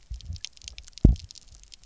{"label": "biophony, double pulse", "recorder": "SoundTrap 300"}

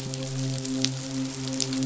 {"label": "biophony, midshipman", "recorder": "SoundTrap 500"}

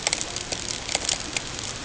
{"label": "ambient", "recorder": "HydroMoth"}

